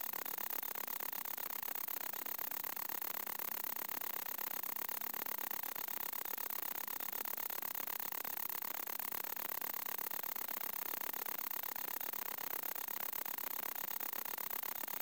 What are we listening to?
Anelytra tristellata, an orthopteran